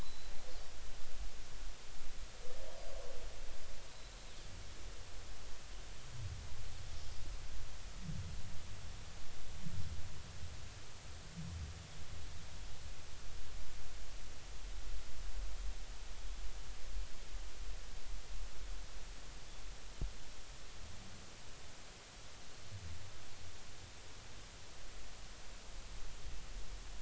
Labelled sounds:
0.0	0.3	Pacific white-sided dolphin, 3.8 to 4.1 kHz

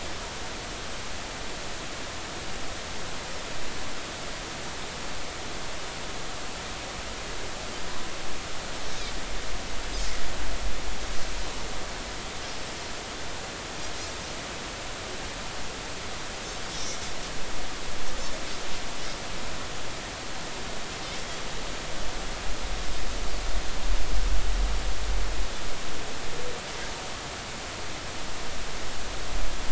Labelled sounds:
16.7	17.0	Pacific white-sided dolphin, 3.5 to 6.1 kHz

